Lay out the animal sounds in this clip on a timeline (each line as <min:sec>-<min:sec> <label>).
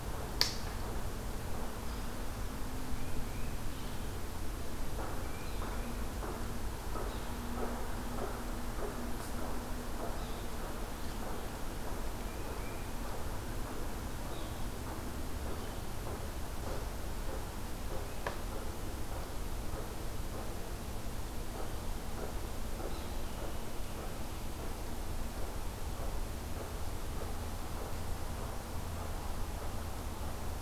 0:02.9-0:04.1 Tufted Titmouse (Baeolophus bicolor)
0:05.1-0:06.2 Tufted Titmouse (Baeolophus bicolor)
0:06.9-0:07.5 Yellow-bellied Sapsucker (Sphyrapicus varius)
0:10.0-0:10.4 Yellow-bellied Sapsucker (Sphyrapicus varius)
0:11.9-0:12.9 Tufted Titmouse (Baeolophus bicolor)
0:14.1-0:14.6 Yellow-bellied Sapsucker (Sphyrapicus varius)
0:22.8-0:23.3 Yellow-bellied Sapsucker (Sphyrapicus varius)